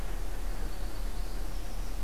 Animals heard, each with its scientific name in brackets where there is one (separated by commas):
Northern Parula (Setophaga americana)